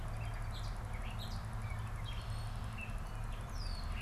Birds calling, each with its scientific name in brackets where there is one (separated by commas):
Red-winged Blackbird (Agelaius phoeniceus), Gray Catbird (Dumetella carolinensis)